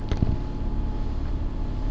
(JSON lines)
{"label": "anthrophony, boat engine", "recorder": "SoundTrap 300"}